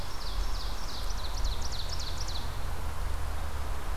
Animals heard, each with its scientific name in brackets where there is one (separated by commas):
Ovenbird (Seiurus aurocapilla)